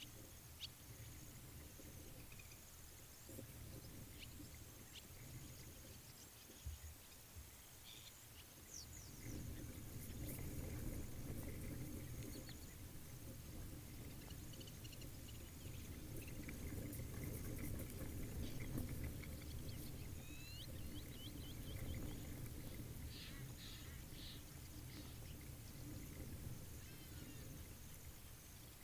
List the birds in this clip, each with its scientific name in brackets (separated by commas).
Blacksmith Lapwing (Vanellus armatus), Egyptian Goose (Alopochen aegyptiaca)